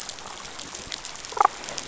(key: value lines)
label: biophony, damselfish
recorder: SoundTrap 500